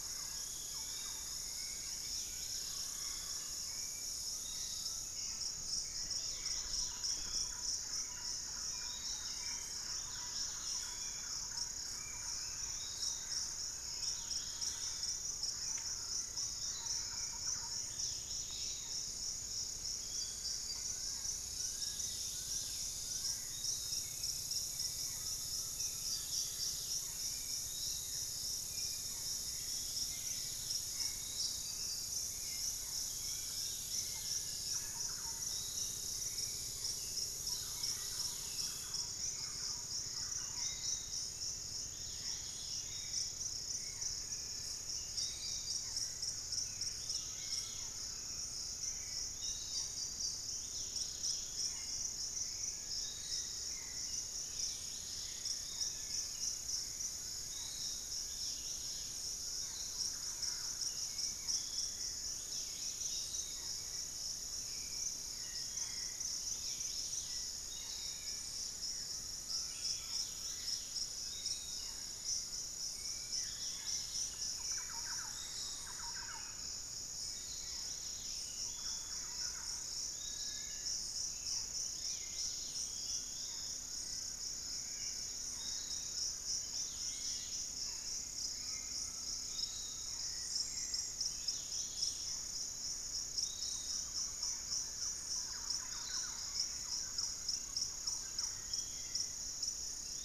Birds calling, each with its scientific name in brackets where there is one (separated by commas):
Piratic Flycatcher (Legatus leucophaius), Dusky-capped Greenlet (Pachysylvia hypoxantha), Undulated Tinamou (Crypturellus undulatus), unidentified bird, Thrush-like Wren (Campylorhynchus turdinus), Cinereous Tinamou (Crypturellus cinereus), Little Tinamou (Crypturellus soui), Fasciated Antshrike (Cymbilaimus lineatus), Buff-throated Woodcreeper (Xiphorhynchus guttatus), Barred Forest-Falcon (Micrastur ruficollis), Hauxwell's Thrush (Turdus hauxwelli)